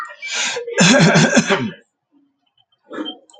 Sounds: Throat clearing